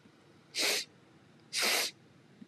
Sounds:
Sniff